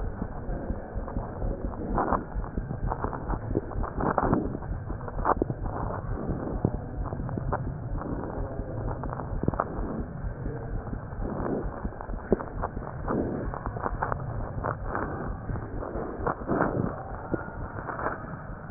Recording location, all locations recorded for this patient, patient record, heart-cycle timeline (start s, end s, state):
aortic valve (AV)
aortic valve (AV)+pulmonary valve (PV)+tricuspid valve (TV)+mitral valve (MV)
#Age: Child
#Sex: Female
#Height: 97.0 cm
#Weight: 13.5 kg
#Pregnancy status: False
#Murmur: Present
#Murmur locations: mitral valve (MV)+tricuspid valve (TV)
#Most audible location: tricuspid valve (TV)
#Systolic murmur timing: Early-systolic
#Systolic murmur shape: Plateau
#Systolic murmur grading: I/VI
#Systolic murmur pitch: Low
#Systolic murmur quality: Blowing
#Diastolic murmur timing: nan
#Diastolic murmur shape: nan
#Diastolic murmur grading: nan
#Diastolic murmur pitch: nan
#Diastolic murmur quality: nan
#Outcome: Abnormal
#Campaign: 2015 screening campaign
0.00	7.76	unannotated
7.76	7.90	diastole
7.90	8.02	S1
8.02	8.10	systole
8.10	8.20	S2
8.20	8.38	diastole
8.38	8.48	S1
8.48	8.57	systole
8.57	8.66	S2
8.66	8.82	diastole
8.82	8.96	S1
8.96	9.08	systole
9.08	9.14	S2
9.14	9.32	diastole
9.32	9.44	S1
9.44	9.52	systole
9.52	9.64	S2
9.64	9.77	diastole
9.77	9.88	S1
9.88	9.98	systole
9.98	10.06	S2
10.06	10.22	diastole
10.22	10.34	S1
10.34	10.45	systole
10.45	10.54	S2
10.54	10.72	diastole
10.72	10.82	S1
10.82	10.91	systole
10.91	10.98	S2
10.98	11.20	diastole
11.20	11.30	S1
11.30	11.40	systole
11.40	11.50	S2
11.50	11.64	diastole
11.64	11.72	S1
11.72	11.82	systole
11.82	11.90	S2
11.90	12.10	diastole
12.10	12.20	S1
12.20	12.30	systole
12.30	12.40	S2
12.40	12.56	diastole
12.56	12.66	S1
12.66	12.75	systole
12.75	12.82	S2
12.82	13.04	diastole
13.04	18.70	unannotated